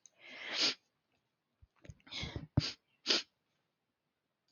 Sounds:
Sniff